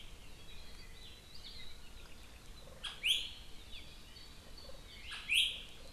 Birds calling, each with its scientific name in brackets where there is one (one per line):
Iiwi (Drepanis coccinea)